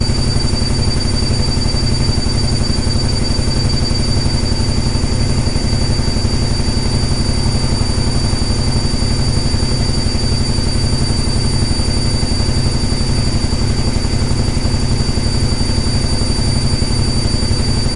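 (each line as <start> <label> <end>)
0.0 A machine produces a continuous operating sound indoors. 18.0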